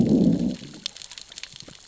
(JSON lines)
{"label": "biophony, growl", "recorder": "SoundTrap 600 or HydroMoth"}